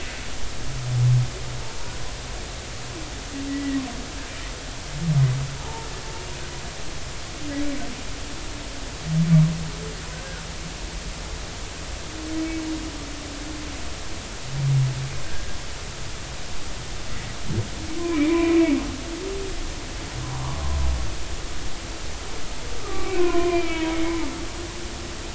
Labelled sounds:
3.5	3.8	humpback whale, 1.9 to 2.0 kHz
5.6	5.9	humpback whale, 0.80 to 0.99 kHz
18.0	18.8	humpback whale, 0.96 to 2.5 kHz
22.8	24.2	humpback whale, 0.93 to 3.3 kHz

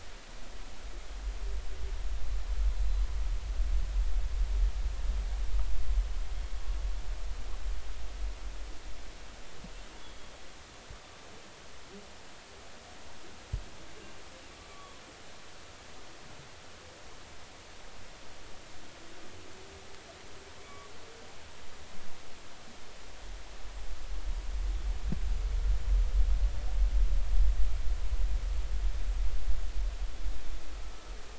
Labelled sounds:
2.8	3.0	humpback whale, 4.0 to 4.1 kHz
10.0	10.3	humpback whale, 3.3 to 3.5 kHz
14.7	14.9	humpback whale, 1.1 to 1.2 kHz
20.6	20.8	humpback whale, 2.2 to 2.3 kHz

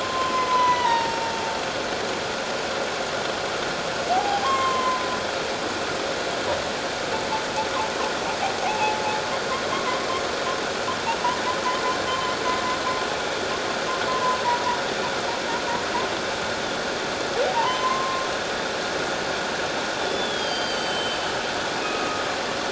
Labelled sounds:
0.0	1.3	humpback whale, 0.84 to 6.2 kHz
4.1	5.1	humpback whale, 0.78 to 7.6 kHz
8.6	9.0	humpback whale, 0.78 to 0.97 kHz
9.7	10.0	humpback whale, 0.94 to 1.2 kHz
14.1	14.8	humpback whale, 0.88 to 1.1 kHz
17.5	18.3	humpback whale, 0.84 to 3.2 kHz
20.0	21.4	humpback whale, 3.0 to 7.8 kHz
21.8	22.2	humpback whale, 1.2 to 2.6 kHz

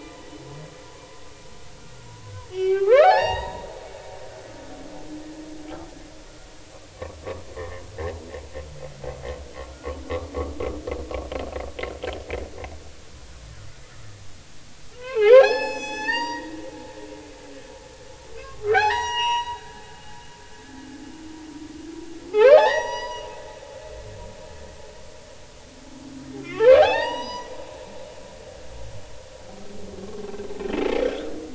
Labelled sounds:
2.5	3.9	humpback whale, 0.80 to 6.6 kHz
7.5	7.9	humpback whale, 0.96 to 1.2 kHz
8.5	9.9	humpback whale, 1.2 to 2.2 kHz
10.4	10.6	humpback whale, 1.0 to 1.3 kHz
14.9	16.6	humpback whale, 0.80 to 7.9 kHz
18.4	19.6	humpback whale, 0.80 to 7.8 kHz
22.3	24.1	humpback whale, 0.80 to 6.0 kHz
26.4	27.5	humpback whale, 0.80 to 6.0 kHz
31.0	31.3	humpback whale, 1.3 to 1.7 kHz

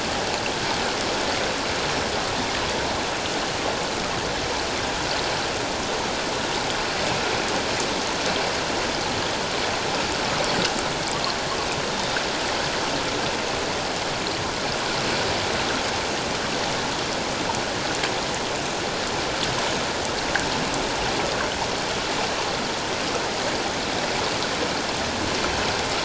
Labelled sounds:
11.9	12.2	killer whale, 3.6 to 3.7 kHz

